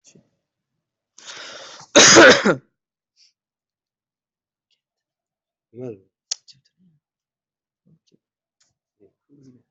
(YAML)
expert_labels:
- quality: good
  cough_type: dry
  dyspnea: false
  wheezing: false
  stridor: false
  choking: false
  congestion: false
  nothing: true
  diagnosis: upper respiratory tract infection
  severity: unknown
age: 21
gender: male
respiratory_condition: false
fever_muscle_pain: false
status: healthy